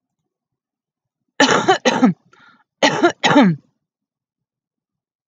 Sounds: Cough